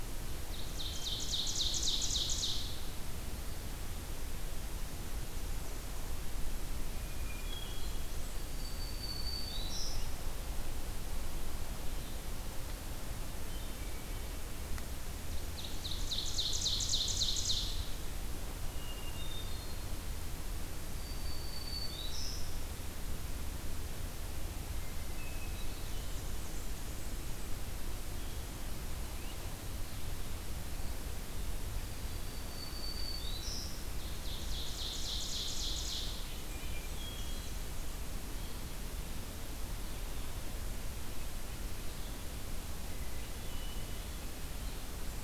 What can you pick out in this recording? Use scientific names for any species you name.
Seiurus aurocapilla, Catharus guttatus, Setophaga virens, Mniotilta varia